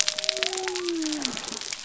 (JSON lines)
{"label": "biophony", "recorder": "SoundTrap 300"}